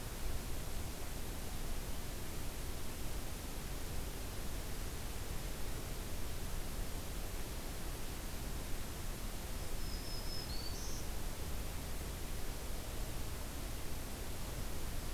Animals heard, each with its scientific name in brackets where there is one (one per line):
Black-throated Green Warbler (Setophaga virens)